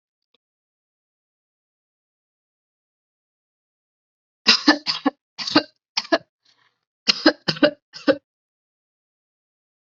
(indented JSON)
{
  "expert_labels": [
    {
      "quality": "ok",
      "cough_type": "dry",
      "dyspnea": false,
      "wheezing": false,
      "stridor": false,
      "choking": false,
      "congestion": false,
      "nothing": true,
      "diagnosis": "upper respiratory tract infection",
      "severity": "mild"
    }
  ],
  "age": 28,
  "gender": "female",
  "respiratory_condition": false,
  "fever_muscle_pain": true,
  "status": "symptomatic"
}